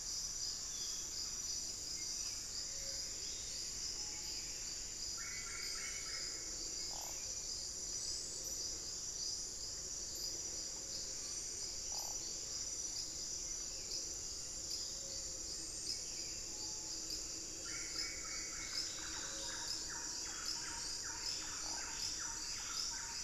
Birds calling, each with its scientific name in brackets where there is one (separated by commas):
Screaming Piha (Lipaugus vociferans), Buff-breasted Wren (Cantorchilus leucotis), Solitary Black Cacique (Cacicus solitarius), Buff-throated Saltator (Saltator maximus), Plumbeous Antbird (Myrmelastes hyperythrus), Thrush-like Wren (Campylorhynchus turdinus), Gray-fronted Dove (Leptotila rufaxilla)